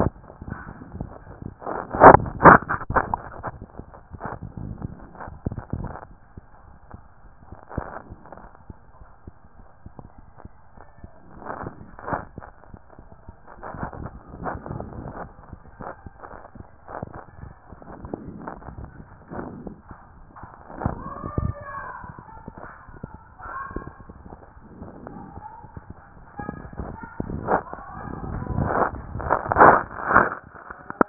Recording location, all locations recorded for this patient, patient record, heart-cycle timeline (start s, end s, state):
mitral valve (MV)
aortic valve (AV)+pulmonary valve (PV)+tricuspid valve (TV)+mitral valve (MV)
#Age: Child
#Sex: Male
#Height: 136.0 cm
#Weight: 46.0 kg
#Pregnancy status: False
#Murmur: Absent
#Murmur locations: nan
#Most audible location: nan
#Systolic murmur timing: nan
#Systolic murmur shape: nan
#Systolic murmur grading: nan
#Systolic murmur pitch: nan
#Systolic murmur quality: nan
#Diastolic murmur timing: nan
#Diastolic murmur shape: nan
#Diastolic murmur grading: nan
#Diastolic murmur pitch: nan
#Diastolic murmur quality: nan
#Outcome: Normal
#Campaign: 2014 screening campaign
0.00	27.81	unannotated
27.81	27.95	systole
27.95	28.05	S2
28.05	28.33	diastole
28.33	28.39	S1
28.39	28.53	systole
28.53	28.63	S2
28.63	28.91	diastole
28.91	28.99	S1
28.99	29.15	systole
29.15	29.25	S2
29.25	29.53	diastole
29.53	29.59	S1
29.59	29.73	systole
29.73	29.83	S2
29.83	30.11	diastole
30.11	30.17	S1
30.17	30.31	systole
30.31	30.41	S2
30.41	30.77	diastole
30.77	30.81	S1
30.81	30.90	systole
30.90	30.92	S2
30.92	31.09	unannotated